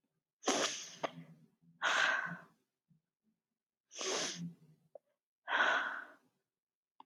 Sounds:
Sigh